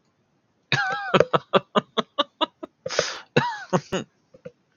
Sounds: Laughter